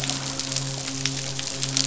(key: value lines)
label: biophony, midshipman
recorder: SoundTrap 500